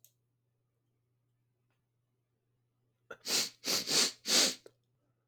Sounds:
Sniff